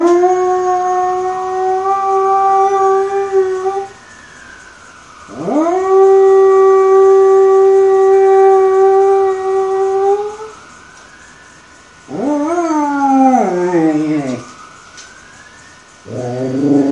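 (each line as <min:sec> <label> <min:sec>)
0:00.0 A person or animal howling. 0:16.9
0:00.0 Sirens sounding in the background. 0:16.9
0:00.1 A loud howl is heard. 0:03.9
0:05.3 A loud howl is heard. 0:10.6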